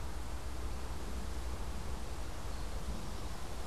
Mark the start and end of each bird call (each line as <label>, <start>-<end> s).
Eastern Towhee (Pipilo erythrophthalmus), 2.5-3.6 s